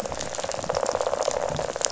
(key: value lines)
label: biophony, rattle
recorder: SoundTrap 500